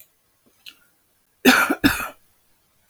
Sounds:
Cough